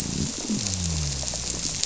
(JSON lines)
{"label": "biophony", "recorder": "SoundTrap 300"}